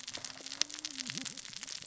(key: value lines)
label: biophony, cascading saw
recorder: SoundTrap 600 or HydroMoth